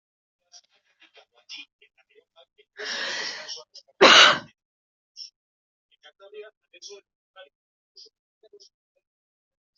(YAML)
expert_labels:
- quality: ok
  cough_type: dry
  dyspnea: false
  wheezing: false
  stridor: false
  choking: false
  congestion: false
  nothing: true
  diagnosis: healthy cough
  severity: pseudocough/healthy cough